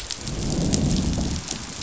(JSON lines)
{"label": "biophony, growl", "recorder": "SoundTrap 500"}